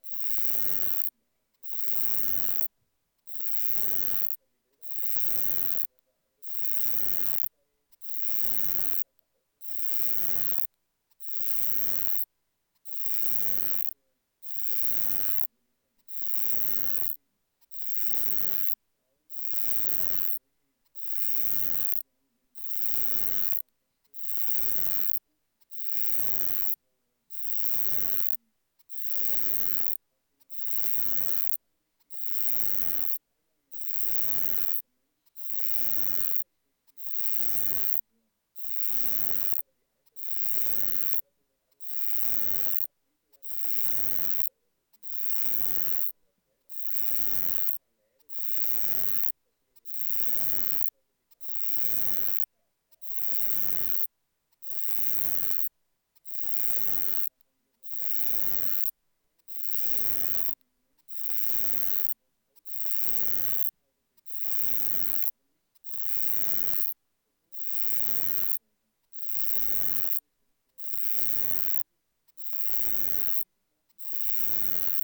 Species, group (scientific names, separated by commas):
Uromenus elegans, Orthoptera